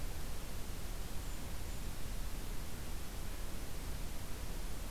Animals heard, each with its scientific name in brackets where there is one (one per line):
Golden-crowned Kinglet (Regulus satrapa)